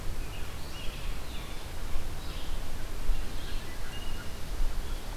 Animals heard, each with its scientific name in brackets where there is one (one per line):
Red-eyed Vireo (Vireo olivaceus)